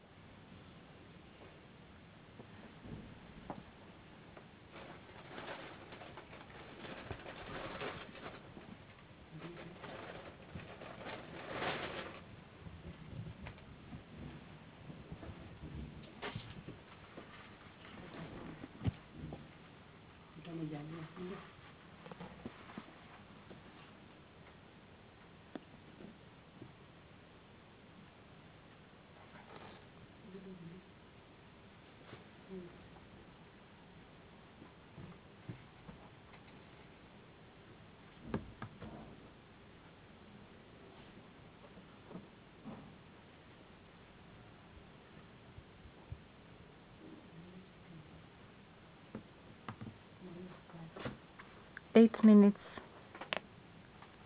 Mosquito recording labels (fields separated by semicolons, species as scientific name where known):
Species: no mosquito; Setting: insect culture